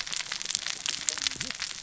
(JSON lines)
{"label": "biophony, cascading saw", "recorder": "SoundTrap 600 or HydroMoth"}